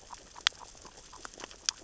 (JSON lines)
{"label": "biophony, grazing", "recorder": "SoundTrap 600 or HydroMoth"}